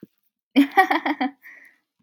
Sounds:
Laughter